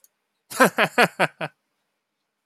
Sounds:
Laughter